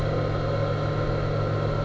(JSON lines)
{"label": "anthrophony, boat engine", "recorder": "SoundTrap 300"}